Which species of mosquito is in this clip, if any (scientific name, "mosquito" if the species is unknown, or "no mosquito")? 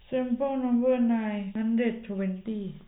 no mosquito